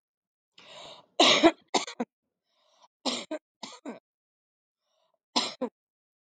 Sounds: Cough